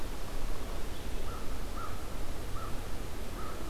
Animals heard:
American Crow (Corvus brachyrhynchos)

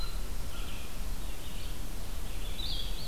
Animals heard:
American Crow (Corvus brachyrhynchos)
Red-eyed Vireo (Vireo olivaceus)

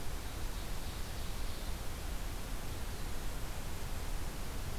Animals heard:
Ovenbird (Seiurus aurocapilla)

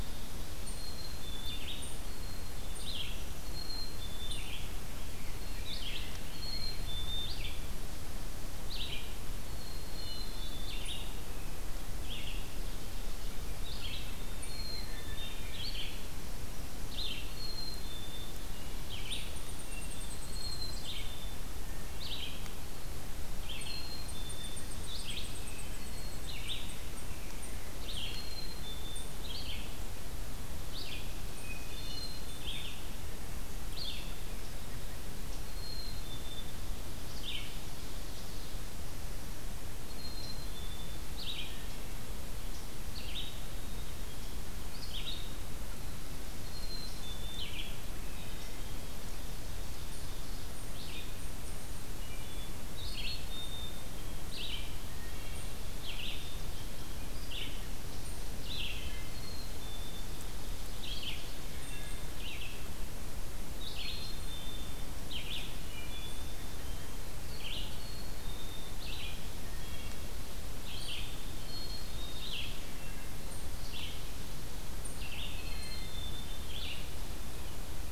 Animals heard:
Eastern Chipmunk (Tamias striatus)
Hermit Thrush (Catharus guttatus)
Ovenbird (Seiurus aurocapilla)
Red-eyed Vireo (Vireo olivaceus)
Black-capped Chickadee (Poecile atricapillus)

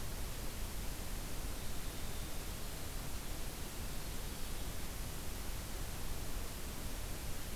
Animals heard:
Winter Wren (Troglodytes hiemalis)

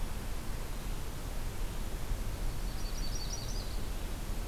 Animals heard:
Yellow-rumped Warbler (Setophaga coronata)

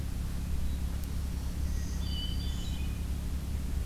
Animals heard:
Black-throated Green Warbler (Setophaga virens)
Hermit Thrush (Catharus guttatus)

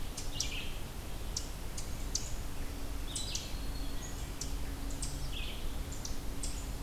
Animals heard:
Red-eyed Vireo (Vireo olivaceus)
Ovenbird (Seiurus aurocapilla)
Black-throated Green Warbler (Setophaga virens)

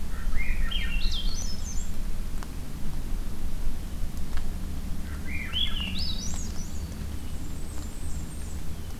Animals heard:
Blackburnian Warbler (Setophaga fusca)
Black-throated Green Warbler (Setophaga virens)
Swainson's Thrush (Catharus ustulatus)

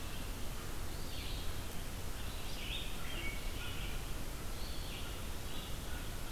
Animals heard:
Red-eyed Vireo (Vireo olivaceus)
Eastern Wood-Pewee (Contopus virens)
American Crow (Corvus brachyrhynchos)

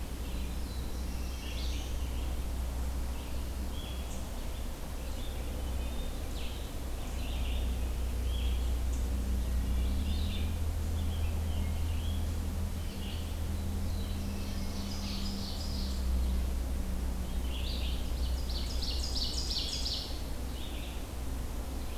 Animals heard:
Black-throated Blue Warbler (Setophaga caerulescens)
Red-eyed Vireo (Vireo olivaceus)
Ovenbird (Seiurus aurocapilla)
Rose-breasted Grosbeak (Pheucticus ludovicianus)
Wood Thrush (Hylocichla mustelina)

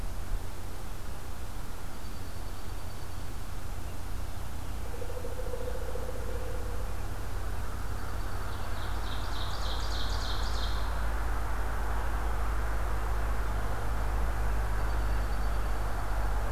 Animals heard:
Dark-eyed Junco (Junco hyemalis)
Pileated Woodpecker (Dryocopus pileatus)
Ovenbird (Seiurus aurocapilla)

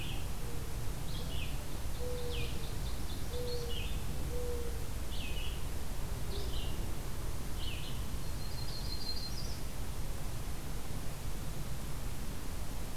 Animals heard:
Red-eyed Vireo (Vireo olivaceus)
Yellow-rumped Warbler (Setophaga coronata)
Ovenbird (Seiurus aurocapilla)
Mourning Dove (Zenaida macroura)

